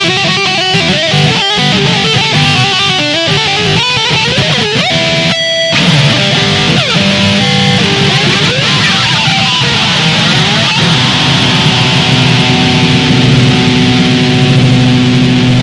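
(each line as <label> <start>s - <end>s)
A guitar is playing loud, sharp, and energetic strumming, creating a powerful and continuous sound. 0.0s - 15.6s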